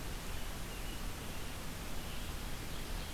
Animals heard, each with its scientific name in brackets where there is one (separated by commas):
Ovenbird (Seiurus aurocapilla), American Robin (Turdus migratorius)